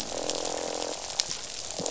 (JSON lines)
{"label": "biophony, croak", "recorder": "SoundTrap 500"}